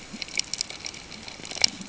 {"label": "ambient", "recorder": "HydroMoth"}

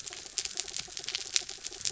{"label": "anthrophony, mechanical", "recorder": "SoundTrap 300"}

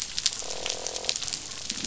{"label": "biophony, croak", "recorder": "SoundTrap 500"}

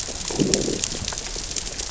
{"label": "biophony, growl", "recorder": "SoundTrap 600 or HydroMoth"}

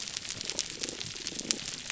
{"label": "biophony, damselfish", "recorder": "SoundTrap 300"}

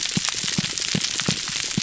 {"label": "biophony, pulse", "recorder": "SoundTrap 300"}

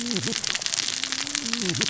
{"label": "biophony, cascading saw", "recorder": "SoundTrap 600 or HydroMoth"}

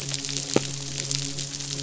{"label": "biophony, midshipman", "recorder": "SoundTrap 500"}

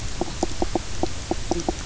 {"label": "biophony, knock croak", "recorder": "SoundTrap 300"}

